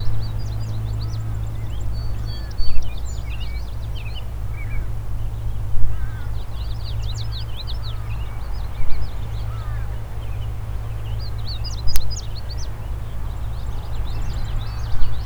Are the birds communicating with each other?
yes